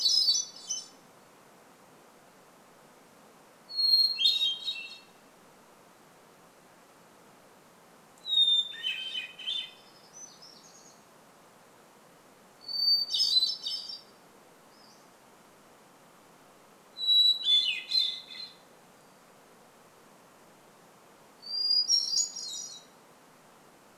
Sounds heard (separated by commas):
Pacific-slope Flycatcher call, warbler song, Hermit Thrush song